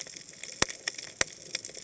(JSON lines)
{"label": "biophony, cascading saw", "recorder": "HydroMoth"}